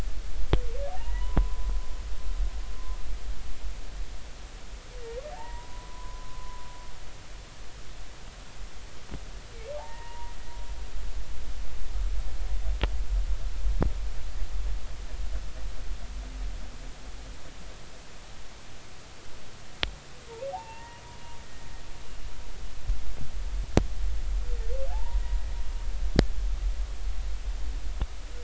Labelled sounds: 0.9	1.7	humpback whale, 0.80 to 1.2 kHz
5.3	6.6	humpback whale, 0.80 to 2.0 kHz
9.7	10.3	humpback whale, 0.80 to 2.0 kHz
20.5	21.0	humpback whale, 0.80 to 2.9 kHz
24.9	25.2	humpback whale, 0.80 to 1.0 kHz

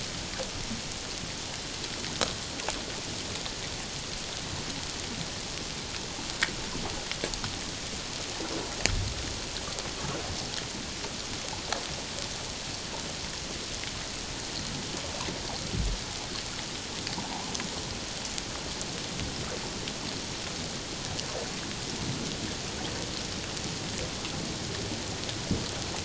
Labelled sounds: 17.2	17.5	humpback whale, 0.78 to 1.1 kHz

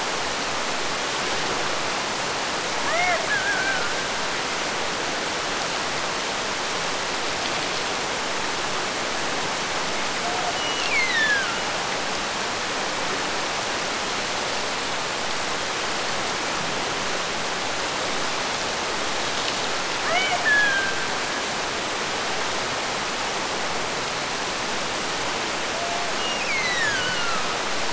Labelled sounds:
2.8	4.1	killer whale, Bigg's (transient), Gulf of Alaska transient, 0.39 to 2.3 kHz
10.5	11.7	killer whale, Bigg's (transient), Gulf of Alaska transient, 1.2 to 7.1 kHz
20.0	21.4	killer whale, Bigg's (transient), Gulf of Alaska transient, 0.39 to 3.6 kHz
26.2	27.6	killer whale, Bigg's (transient), Gulf of Alaska transient, 1.1 to 8.0 kHz

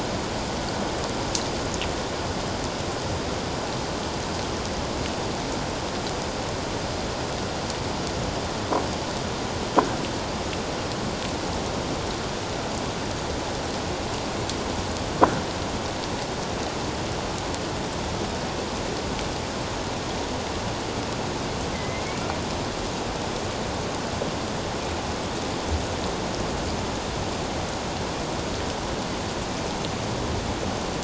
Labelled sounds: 21.7	22.3	killer whale, northern resident, A clan, 2.0 to 2.4 kHz

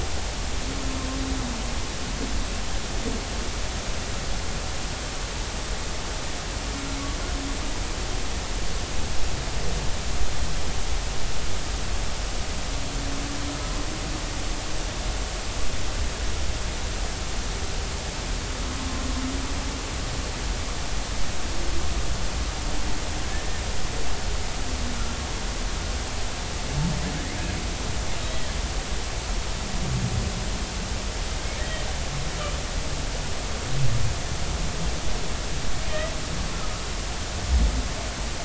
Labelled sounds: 23.3	23.6	humpback whale, 1.7 to 1.9 kHz
28.2	28.5	humpback whale, 3.1 to 3.3 kHz

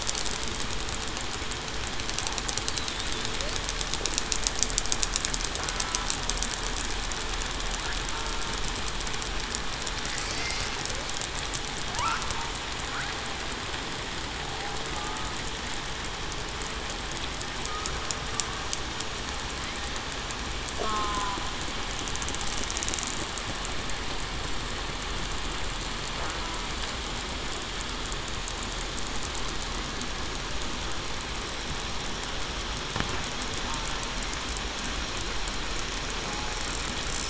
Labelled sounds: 20.8	21.4	killer whale, southern resident, 0.96 to 1.1 kHz

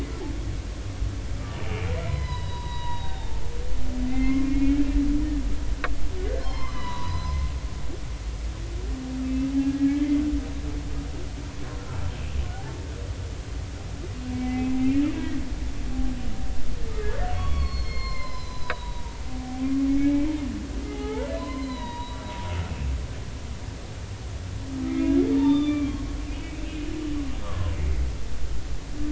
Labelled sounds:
2.0	3.5	humpback whale, 0.80 to 5.1 kHz
4.1	4.8	humpback whale, 1.0 to 2.7 kHz
6.4	7.5	humpback whale, 0.86 to 5.4 kHz
9.2	10.1	humpback whale, 1.6 to 2.7 kHz
11.8	12.0	humpback whale, 1.2 to 1.5 kHz
15.2	15.4	humpback whale, 1.6 to 1.7 kHz
17.2	19.2	humpback whale, 0.86 to 5.3 kHz
20.0	22.2	humpback whale, 0.80 to 4.2 kHz
24.8	26.5	humpback whale, 0.83 to 3.7 kHz
27.4	28.1	humpback whale, 0.99 to 2.2 kHz

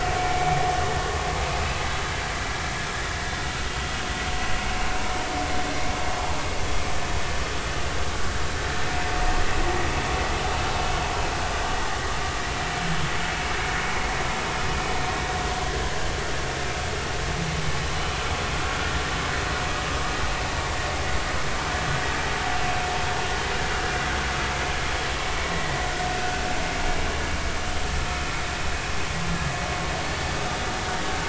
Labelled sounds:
0.2	0.5	vessel noise, 2.2 to 2.4 kHz
25.5	25.8	vessel noise, 1.8 to 2.0 kHz

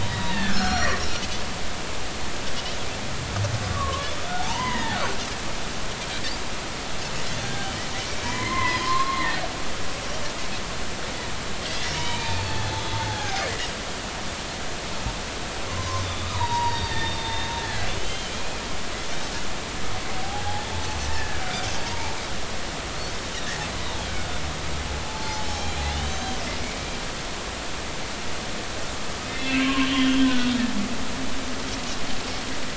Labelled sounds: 0.0	0.9	humpback whale, 0.86 to 4.0 kHz
0.5	1.0	Pacific white-sided dolphin, 4.2 to 5.8 kHz
3.7	4.1	humpback whale, 0.99 to 1.2 kHz
4.4	5.2	humpback whale, 0.80 to 3.2 kHz
7.4	9.4	humpback whale, 0.80 to 2.2 kHz
11.6	12.5	humpback whale, 0.83 to 4.0 kHz
13.1	13.7	humpback whale, 0.80 to 2.1 kHz
15.7	18.6	humpback whale, 0.86 to 4.8 kHz
21.1	22.2	humpback whale, 0.80 to 1.9 kHz
25.1	26.4	humpback whale, 0.83 to 3.2 kHz
25.4	25.8	Pacific white-sided dolphin, 5.3 to 6.4 kHz
26.1	26.3	Pacific white-sided dolphin, 6.2 to 6.4 kHz
29.3	30.5	humpback whale, 0.96 to 3.4 kHz

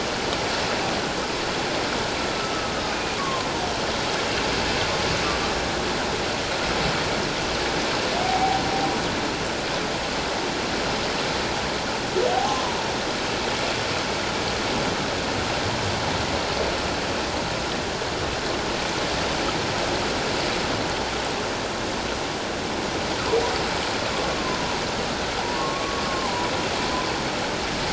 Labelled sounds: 2.9	3.5	humpback whale, 0.97 to 2.5 kHz
8.2	8.6	humpback whale, 0.78 to 0.88 kHz
12.3	12.8	humpback whale, 0.78 to 1.2 kHz
25.6	26.5	humpback whale, 0.78 to 1.2 kHz

